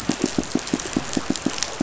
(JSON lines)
{"label": "biophony, pulse", "recorder": "SoundTrap 500"}